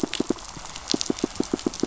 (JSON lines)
{"label": "biophony, pulse", "recorder": "SoundTrap 500"}